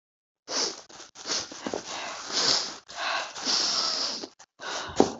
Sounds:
Sniff